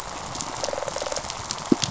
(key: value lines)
label: biophony, rattle response
recorder: SoundTrap 500